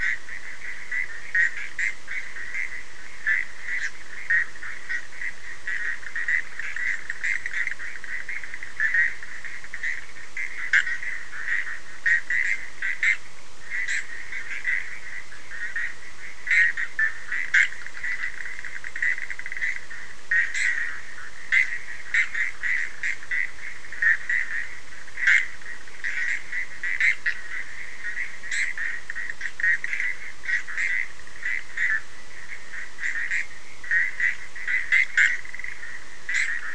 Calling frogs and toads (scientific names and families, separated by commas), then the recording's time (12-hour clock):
Boana bischoffi (Hylidae)
1:30am